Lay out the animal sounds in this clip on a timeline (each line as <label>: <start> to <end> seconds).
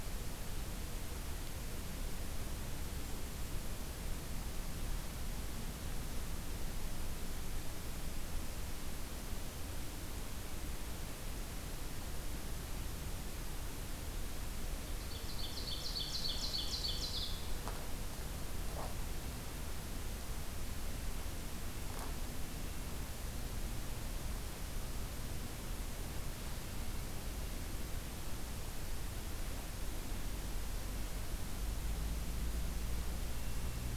Ovenbird (Seiurus aurocapilla): 15.0 to 17.5 seconds